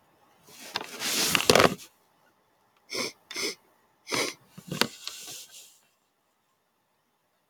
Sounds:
Sniff